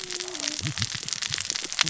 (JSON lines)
{"label": "biophony, cascading saw", "recorder": "SoundTrap 600 or HydroMoth"}